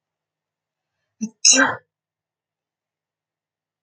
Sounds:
Sneeze